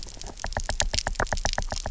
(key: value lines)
label: biophony, knock
recorder: SoundTrap 300